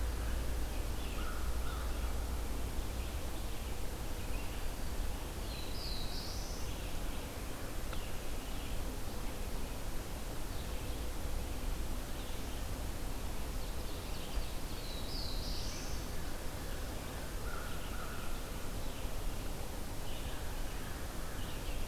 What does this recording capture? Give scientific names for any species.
Vireo olivaceus, Corvus brachyrhynchos, Setophaga caerulescens, Seiurus aurocapilla